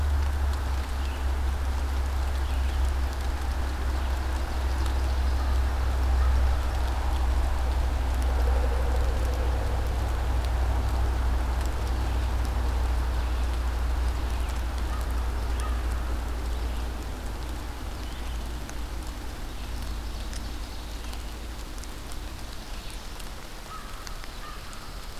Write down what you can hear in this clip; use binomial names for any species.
Vireo olivaceus, Corvus brachyrhynchos